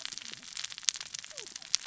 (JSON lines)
{"label": "biophony, cascading saw", "recorder": "SoundTrap 600 or HydroMoth"}